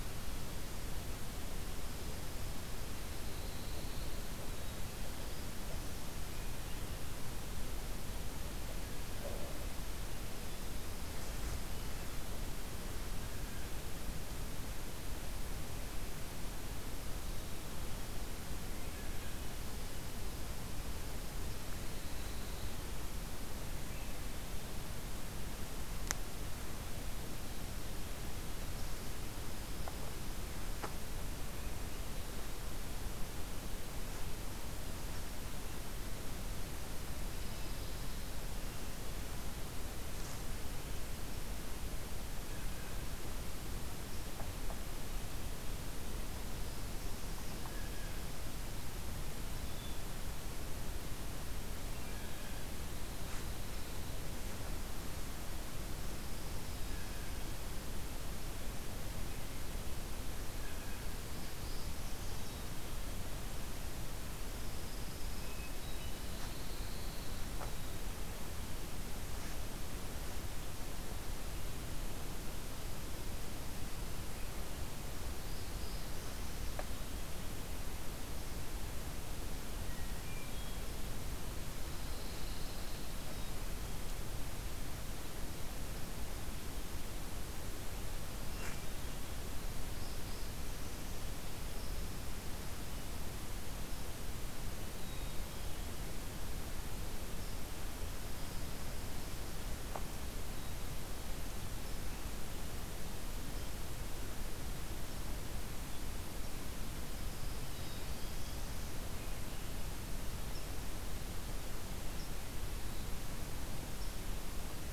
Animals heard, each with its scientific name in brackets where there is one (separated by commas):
Pine Warbler (Setophaga pinus), Hermit Thrush (Catharus guttatus), Black-capped Chickadee (Poecile atricapillus), Black-throated Blue Warbler (Setophaga caerulescens), Blue Jay (Cyanocitta cristata)